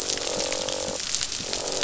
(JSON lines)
{"label": "biophony, croak", "recorder": "SoundTrap 500"}